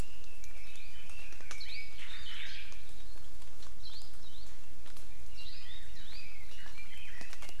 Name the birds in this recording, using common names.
Red-billed Leiothrix, Hawaii Amakihi, Omao